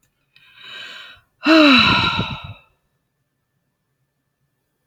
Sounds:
Sigh